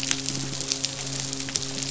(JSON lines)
{"label": "biophony, midshipman", "recorder": "SoundTrap 500"}
{"label": "biophony", "recorder": "SoundTrap 500"}